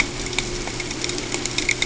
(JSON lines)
{"label": "ambient", "recorder": "HydroMoth"}